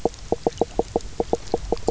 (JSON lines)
{"label": "biophony, knock croak", "recorder": "SoundTrap 300"}